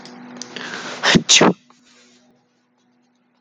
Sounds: Sneeze